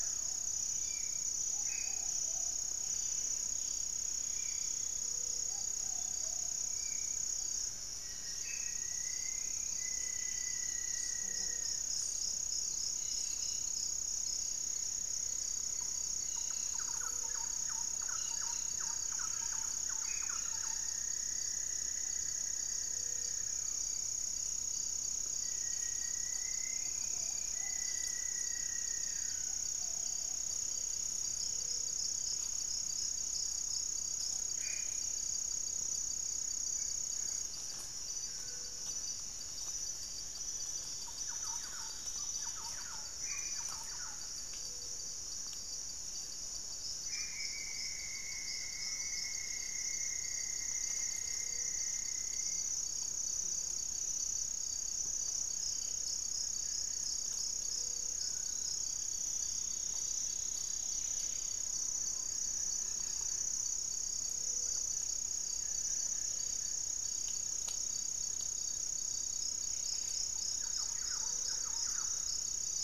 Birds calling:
Gray-fronted Dove (Leptotila rufaxilla)
Rufous-fronted Antthrush (Formicarius rufifrons)
Gray-cowled Wood-Rail (Aramides cajaneus)
Buff-breasted Wren (Cantorchilus leucotis)
Black-faced Antthrush (Formicarius analis)
Spot-winged Antshrike (Pygiptila stellaris)
Cobalt-winged Parakeet (Brotogeris cyanoptera)
Thrush-like Wren (Campylorhynchus turdinus)
unidentified bird
Cinnamon-throated Woodcreeper (Dendrexetastes rufigula)
Amazonian Trogon (Trogon ramonianus)
Striped Woodcreeper (Xiphorhynchus obsoletus)

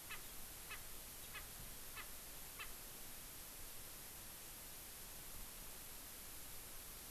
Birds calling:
Erckel's Francolin (Pternistis erckelii)

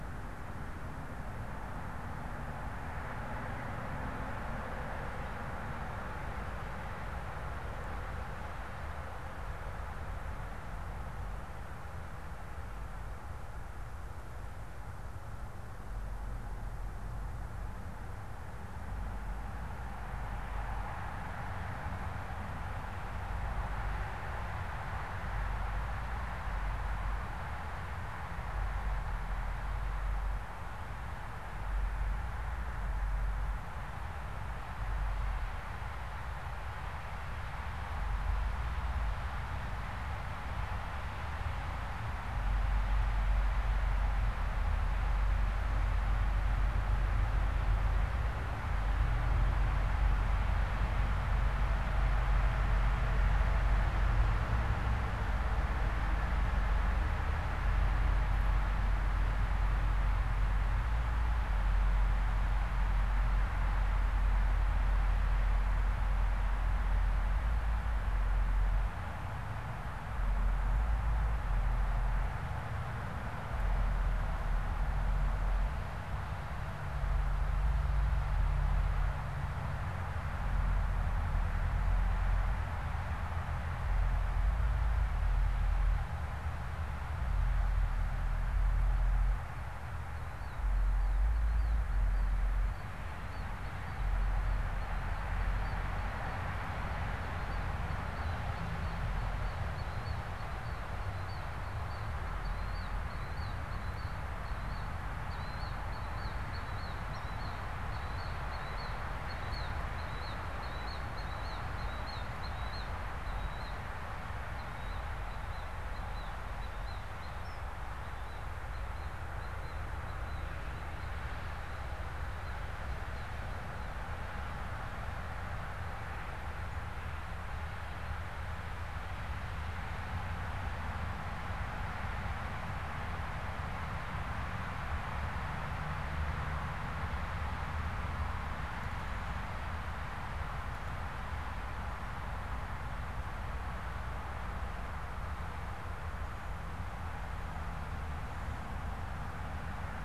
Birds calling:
Killdeer (Charadrius vociferus)

